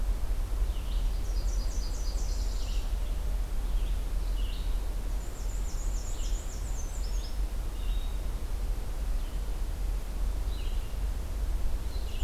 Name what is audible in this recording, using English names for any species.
Red-eyed Vireo, Nashville Warbler, Black-and-white Warbler